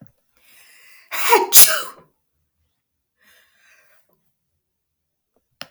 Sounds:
Sneeze